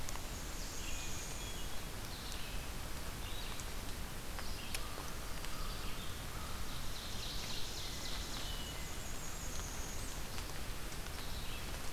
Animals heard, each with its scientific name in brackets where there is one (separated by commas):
Northern Parula (Setophaga americana), American Crow (Corvus brachyrhynchos), Red-eyed Vireo (Vireo olivaceus), Hermit Thrush (Catharus guttatus), Ovenbird (Seiurus aurocapilla)